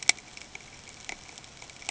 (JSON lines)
{"label": "ambient", "recorder": "HydroMoth"}